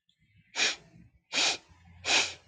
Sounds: Sniff